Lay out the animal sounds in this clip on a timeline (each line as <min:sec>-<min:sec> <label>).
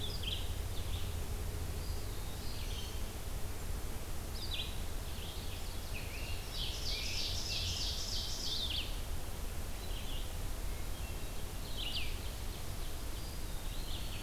0:00.0-0:14.2 Red-eyed Vireo (Vireo olivaceus)
0:01.6-0:03.0 Eastern Wood-Pewee (Contopus virens)
0:04.8-0:08.8 Ovenbird (Seiurus aurocapilla)
0:10.6-0:11.7 Hermit Thrush (Catharus guttatus)
0:12.1-0:13.5 Ovenbird (Seiurus aurocapilla)
0:13.1-0:14.2 Eastern Wood-Pewee (Contopus virens)